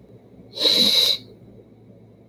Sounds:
Sniff